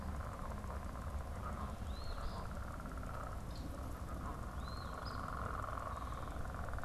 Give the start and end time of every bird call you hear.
1.8s-2.4s: Eastern Phoebe (Sayornis phoebe)
4.4s-5.3s: Eastern Phoebe (Sayornis phoebe)

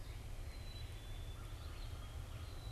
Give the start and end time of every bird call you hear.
0.0s-2.7s: Black-capped Chickadee (Poecile atricapillus)
0.0s-2.7s: Red-eyed Vireo (Vireo olivaceus)
1.2s-2.7s: American Crow (Corvus brachyrhynchos)

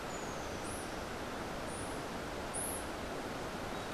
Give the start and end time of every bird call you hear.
0.0s-0.9s: Rufous-tailed Hummingbird (Amazilia tzacatl)
0.5s-3.0s: White-eared Ground-Sparrow (Melozone leucotis)

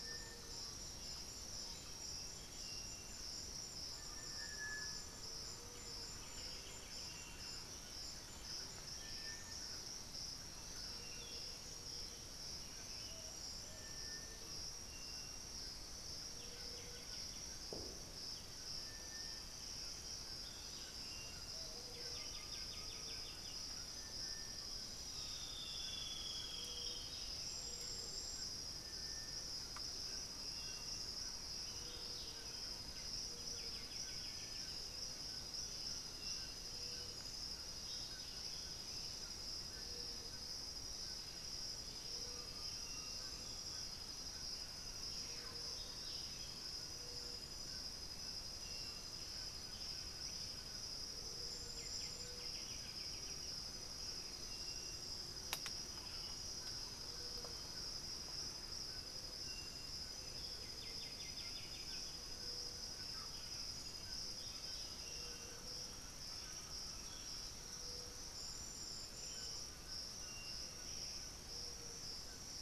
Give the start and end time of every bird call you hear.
0.0s-2.5s: Thrush-like Wren (Campylorhynchus turdinus)
0.0s-2.6s: unidentified bird
0.0s-72.6s: Striped Cuckoo (Tapera naevia)
3.5s-4.4s: White-lored Tyrannulet (Ornithion inerme)
3.8s-6.1s: Undulated Tinamou (Crypturellus undulatus)
5.7s-7.6s: White-winged Becard (Pachyramphus polychopterus)
5.8s-11.3s: Thrush-like Wren (Campylorhynchus turdinus)
7.6s-9.9s: unidentified bird
11.0s-11.7s: unidentified bird
12.0s-13.5s: Buff-throated Saltator (Saltator maximus)
14.3s-20.6s: Black-billed Thrush (Turdus ignobilis)
15.8s-23.6s: White-winged Becard (Pachyramphus polychopterus)
20.3s-28.0s: Buff-throated Saltator (Saltator maximus)
22.1s-26.8s: Undulated Tinamou (Crypturellus undulatus)
24.9s-27.3s: Chestnut-winged Foliage-gleaner (Dendroma erythroptera)
29.7s-72.6s: White-throated Toucan (Ramphastos tucanus)
31.5s-32.7s: Buff-throated Saltator (Saltator maximus)
33.3s-35.2s: White-winged Becard (Pachyramphus polychopterus)
37.8s-39.3s: Buff-throated Saltator (Saltator maximus)
42.2s-51.1s: Undulated Tinamou (Crypturellus undulatus)
43.1s-44.2s: unidentified bird
44.5s-45.9s: Buff-breasted Wren (Cantorchilus leucotis)
45.6s-46.7s: Buff-throated Saltator (Saltator maximus)
48.5s-51.0s: Black-billed Thrush (Turdus ignobilis)
51.7s-53.6s: White-winged Becard (Pachyramphus polychopterus)
55.3s-59.1s: Thrush-like Wren (Campylorhynchus turdinus)
60.4s-62.6s: White-winged Becard (Pachyramphus polychopterus)
63.0s-63.4s: unidentified bird
64.2s-65.9s: Buff-throated Saltator (Saltator maximus)
66.0s-71.6s: Undulated Tinamou (Crypturellus undulatus)
66.9s-69.8s: Black-billed Thrush (Turdus ignobilis)
70.7s-71.5s: unidentified bird

